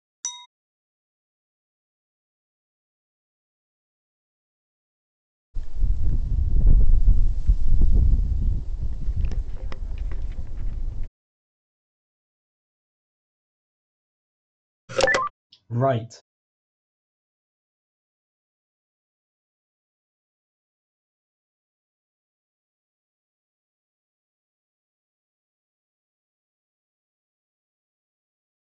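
At 0.22 seconds, glass chinks quietly. Then, at 5.54 seconds, you can hear wind. After that, at 14.88 seconds, the sound of a telephone is heard. Finally, at 15.7 seconds, a voice says "Right."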